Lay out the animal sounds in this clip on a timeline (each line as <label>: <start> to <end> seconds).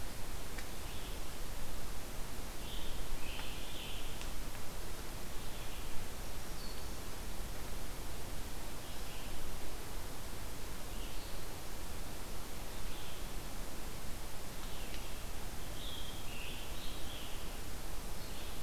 Red-eyed Vireo (Vireo olivaceus): 0.0 to 18.6 seconds
Scarlet Tanager (Piranga olivacea): 2.5 to 4.3 seconds
Black-throated Green Warbler (Setophaga virens): 6.2 to 7.0 seconds
Scarlet Tanager (Piranga olivacea): 15.6 to 17.6 seconds